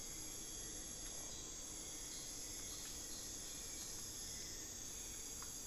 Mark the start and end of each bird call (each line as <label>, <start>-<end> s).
unidentified bird, 0.2-4.5 s
Hauxwell's Thrush (Turdus hauxwelli), 4.3-5.7 s